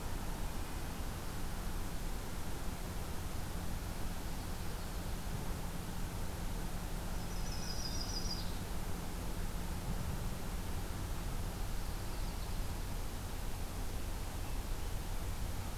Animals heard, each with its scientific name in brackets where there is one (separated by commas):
Yellow-rumped Warbler (Setophaga coronata)